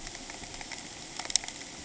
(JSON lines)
{"label": "ambient", "recorder": "HydroMoth"}